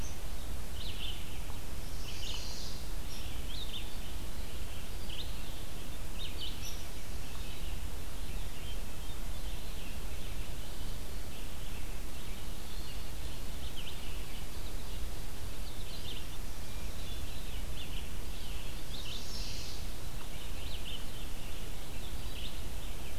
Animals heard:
Red-eyed Vireo (Vireo olivaceus)
Chestnut-sided Warbler (Setophaga pensylvanica)
Hermit Thrush (Catharus guttatus)
Hairy Woodpecker (Dryobates villosus)

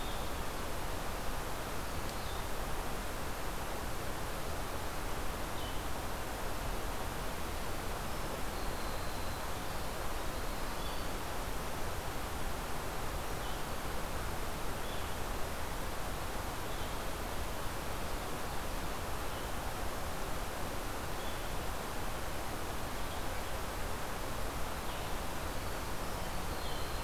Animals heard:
Winter Wren (Troglodytes hiemalis)
Black-throated Blue Warbler (Setophaga caerulescens)
Blue-headed Vireo (Vireo solitarius)

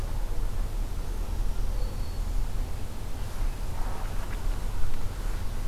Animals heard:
Black-throated Green Warbler (Setophaga virens)

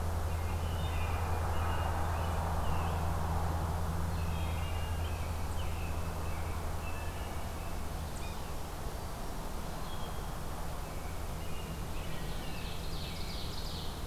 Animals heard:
American Robin (Turdus migratorius)
Wood Thrush (Hylocichla mustelina)
Ovenbird (Seiurus aurocapilla)
Yellow-bellied Sapsucker (Sphyrapicus varius)

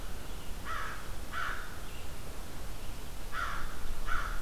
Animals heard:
American Crow (Corvus brachyrhynchos)

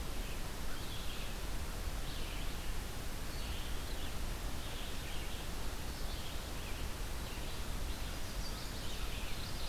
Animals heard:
Red-eyed Vireo (Vireo olivaceus)
Chestnut-sided Warbler (Setophaga pensylvanica)

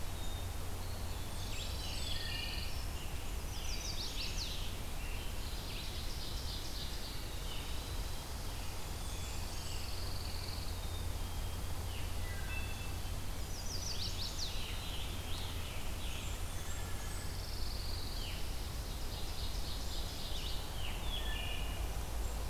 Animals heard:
Wood Thrush (Hylocichla mustelina)
Chestnut-sided Warbler (Setophaga pensylvanica)
Blackburnian Warbler (Setophaga fusca)
Ovenbird (Seiurus aurocapilla)
Pine Warbler (Setophaga pinus)
Scarlet Tanager (Piranga olivacea)
Black-capped Chickadee (Poecile atricapillus)
Red-eyed Vireo (Vireo olivaceus)
Eastern Wood-Pewee (Contopus virens)
Veery (Catharus fuscescens)

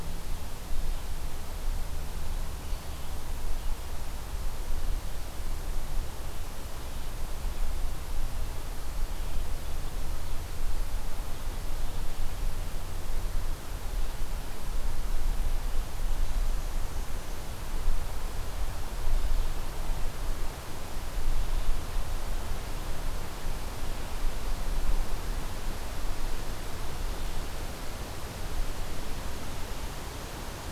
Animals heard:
Black-and-white Warbler (Mniotilta varia)

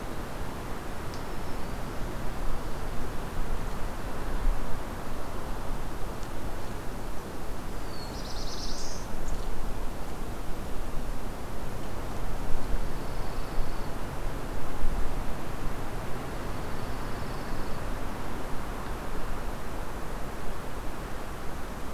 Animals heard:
Black-throated Green Warbler (Setophaga virens)
Black-throated Blue Warbler (Setophaga caerulescens)
Dark-eyed Junco (Junco hyemalis)

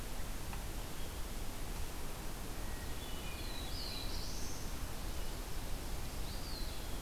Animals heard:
Hermit Thrush (Catharus guttatus)
Eastern Wood-Pewee (Contopus virens)
Black-throated Blue Warbler (Setophaga caerulescens)

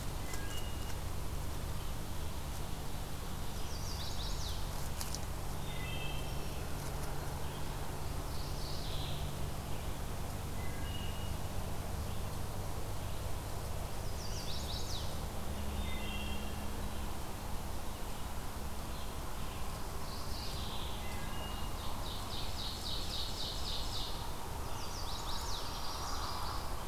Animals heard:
Ovenbird (Seiurus aurocapilla)
Chestnut-sided Warbler (Setophaga pensylvanica)
Magnolia Warbler (Setophaga magnolia)
Wood Thrush (Hylocichla mustelina)
Mourning Warbler (Geothlypis philadelphia)

